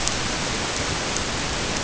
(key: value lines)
label: ambient
recorder: HydroMoth